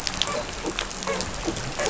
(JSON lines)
{"label": "biophony, dolphin", "recorder": "SoundTrap 500"}